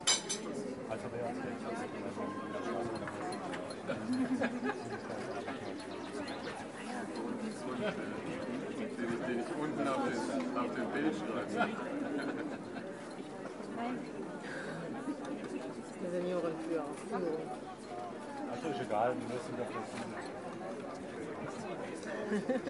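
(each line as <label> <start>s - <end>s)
Cutlery clinks. 0.0s - 0.7s
People are having a conversation in a large space. 0.0s - 22.7s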